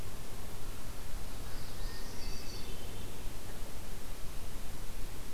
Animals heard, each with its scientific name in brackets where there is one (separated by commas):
Hermit Thrush (Catharus guttatus), Northern Parula (Setophaga americana)